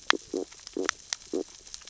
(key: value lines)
label: biophony, stridulation
recorder: SoundTrap 600 or HydroMoth